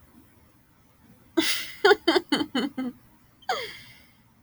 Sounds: Laughter